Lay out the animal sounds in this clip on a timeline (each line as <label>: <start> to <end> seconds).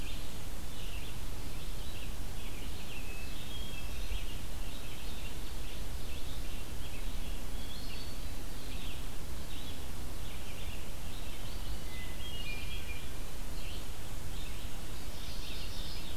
Red-eyed Vireo (Vireo olivaceus): 0.0 to 16.2 seconds
Hermit Thrush (Catharus guttatus): 2.9 to 4.3 seconds
Hermit Thrush (Catharus guttatus): 7.4 to 8.9 seconds
Hermit Thrush (Catharus guttatus): 11.9 to 13.2 seconds
Mourning Warbler (Geothlypis philadelphia): 14.8 to 16.2 seconds